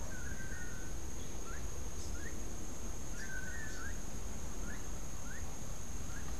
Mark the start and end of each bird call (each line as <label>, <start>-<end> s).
Gray-headed Chachalaca (Ortalis cinereiceps), 0.0-2.9 s
Long-tailed Manakin (Chiroxiphia linearis), 0.0-3.9 s
Rufous-capped Warbler (Basileuterus rufifrons), 1.7-2.3 s
Melodious Blackbird (Dives dives), 4.6-6.3 s